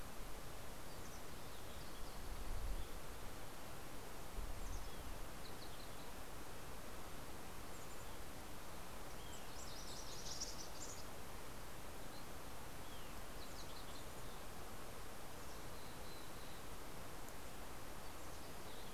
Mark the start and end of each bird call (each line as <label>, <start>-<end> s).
Mountain Chickadee (Poecile gambeli), 8.5-11.3 s
MacGillivray's Warbler (Geothlypis tolmiei), 9.0-10.6 s
Yellow-rumped Warbler (Setophaga coronata), 12.0-14.2 s
Mountain Chickadee (Poecile gambeli), 14.7-16.8 s